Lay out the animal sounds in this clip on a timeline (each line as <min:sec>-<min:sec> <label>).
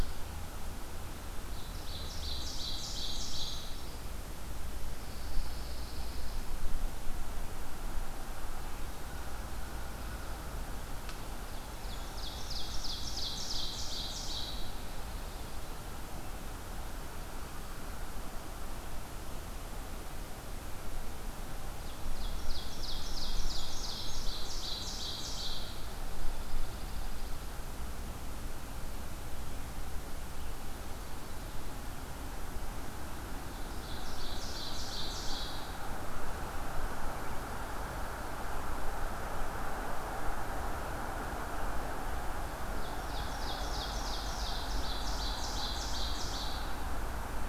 0:01.3-0:03.8 Ovenbird (Seiurus aurocapilla)
0:02.6-0:04.1 Brown Creeper (Certhia americana)
0:04.9-0:06.5 Pine Warbler (Setophaga pinus)
0:10.1-0:12.3 American Crow (Corvus brachyrhynchos)
0:11.4-0:14.6 Ovenbird (Seiurus aurocapilla)
0:21.7-0:25.7 Ovenbird (Seiurus aurocapilla)
0:26.2-0:27.4 Pine Warbler (Setophaga pinus)
0:33.8-0:35.8 Ovenbird (Seiurus aurocapilla)
0:42.6-0:46.7 Ovenbird (Seiurus aurocapilla)